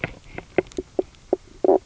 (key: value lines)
label: biophony, knock croak
recorder: SoundTrap 300